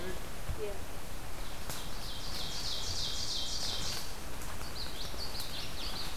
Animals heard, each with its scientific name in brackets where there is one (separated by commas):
Ovenbird (Seiurus aurocapilla), Common Yellowthroat (Geothlypis trichas), Blue-headed Vireo (Vireo solitarius)